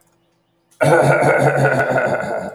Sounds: Cough